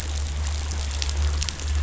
{"label": "anthrophony, boat engine", "recorder": "SoundTrap 500"}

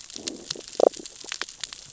{"label": "biophony, damselfish", "recorder": "SoundTrap 600 or HydroMoth"}
{"label": "biophony, growl", "recorder": "SoundTrap 600 or HydroMoth"}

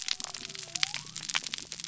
{"label": "biophony", "recorder": "SoundTrap 300"}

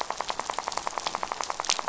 {"label": "biophony, rattle", "recorder": "SoundTrap 500"}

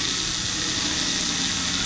{"label": "anthrophony, boat engine", "recorder": "SoundTrap 500"}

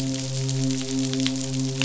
{"label": "biophony, midshipman", "recorder": "SoundTrap 500"}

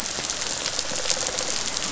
{"label": "biophony", "recorder": "SoundTrap 500"}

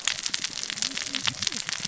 {"label": "biophony, cascading saw", "recorder": "SoundTrap 600 or HydroMoth"}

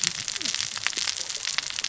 {"label": "biophony, cascading saw", "recorder": "SoundTrap 600 or HydroMoth"}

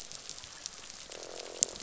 {"label": "biophony, croak", "recorder": "SoundTrap 500"}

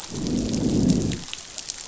{"label": "biophony, growl", "recorder": "SoundTrap 500"}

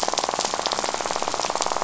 {"label": "biophony, rattle", "recorder": "SoundTrap 500"}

